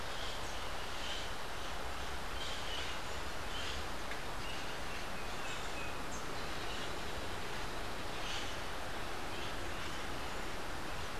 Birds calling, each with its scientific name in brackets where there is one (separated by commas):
Rufous-capped Warbler (Basileuterus rufifrons), Crimson-fronted Parakeet (Psittacara finschi)